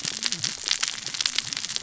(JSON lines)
{"label": "biophony, cascading saw", "recorder": "SoundTrap 600 or HydroMoth"}